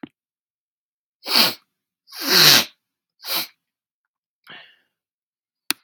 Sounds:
Sniff